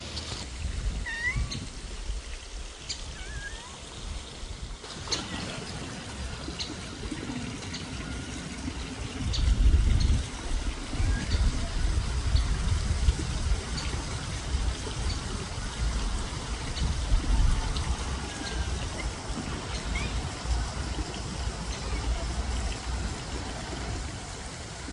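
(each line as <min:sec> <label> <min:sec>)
0:00.0 Muffled atmospheric noises with rumbling and flowing water in the forest, accompanied by a bird chirping quietly. 0:04.8
0:00.9 A cat meows with atmospheric noises and rumbling in the background. 0:01.7
0:02.8 A cat meows with atmospheric noises and rumbling in the background. 0:03.7
0:04.8 Muffled atmospheric noises with rumbling and flowing water in the forest, accompanied by a bird chirping quietly in the distance. 0:24.9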